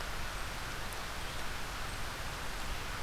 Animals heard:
forest ambience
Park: Marsh-Billings-Rockefeller National Historical Park